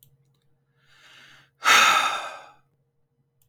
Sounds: Sigh